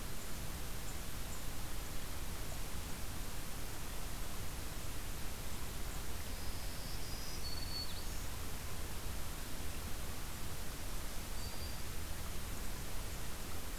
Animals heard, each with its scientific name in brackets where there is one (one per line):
Black-throated Green Warbler (Setophaga virens)